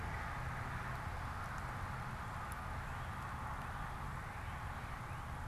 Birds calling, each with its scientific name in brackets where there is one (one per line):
Northern Cardinal (Cardinalis cardinalis)